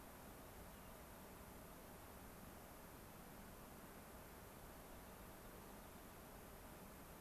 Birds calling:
unidentified bird

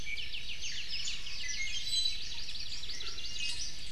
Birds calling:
Apapane (Himatione sanguinea), Iiwi (Drepanis coccinea)

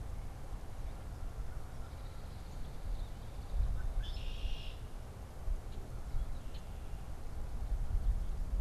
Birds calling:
Red-winged Blackbird (Agelaius phoeniceus)

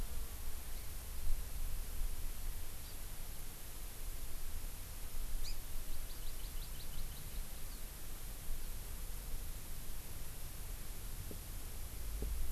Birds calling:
House Finch (Haemorhous mexicanus), Hawaii Amakihi (Chlorodrepanis virens)

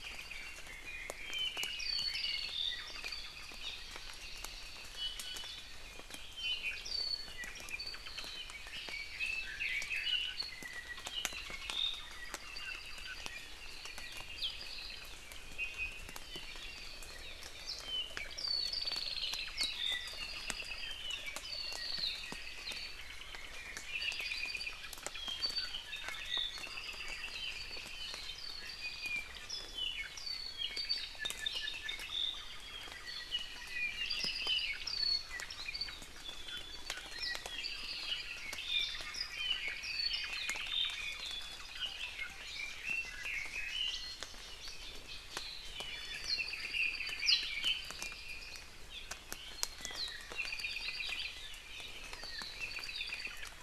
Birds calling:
Hawaii Amakihi (Chlorodrepanis virens), Iiwi (Drepanis coccinea), Apapane (Himatione sanguinea), Red-billed Leiothrix (Leiothrix lutea)

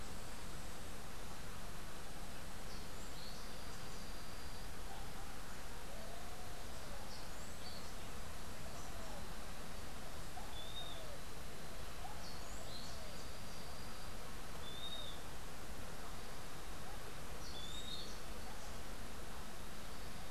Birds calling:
Western Wood-Pewee (Contopus sordidulus), Orange-billed Nightingale-Thrush (Catharus aurantiirostris)

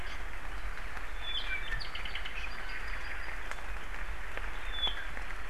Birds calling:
Iiwi (Drepanis coccinea), Apapane (Himatione sanguinea)

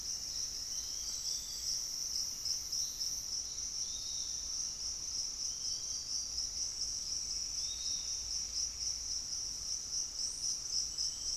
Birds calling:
Hauxwell's Thrush (Turdus hauxwelli), Piratic Flycatcher (Legatus leucophaius), Gray Antwren (Myrmotherula menetriesii), Pygmy Antwren (Myrmotherula brachyura)

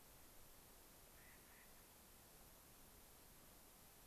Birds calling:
Clark's Nutcracker (Nucifraga columbiana)

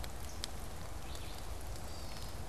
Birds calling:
Red-eyed Vireo (Vireo olivaceus), Gray Catbird (Dumetella carolinensis)

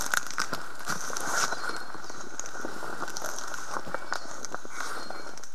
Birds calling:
Iiwi (Drepanis coccinea)

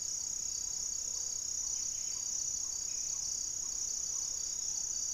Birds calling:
Gray-fronted Dove (Leptotila rufaxilla), Black-tailed Trogon (Trogon melanurus), Black-faced Antthrush (Formicarius analis), Buff-breasted Wren (Cantorchilus leucotis)

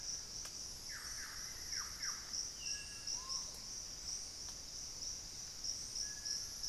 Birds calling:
Solitary Black Cacique (Cacicus solitarius), Lemon-throated Barbet (Eubucco richardsoni), Bartlett's Tinamou (Crypturellus bartletti)

